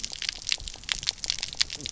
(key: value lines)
label: biophony, knock croak
recorder: SoundTrap 300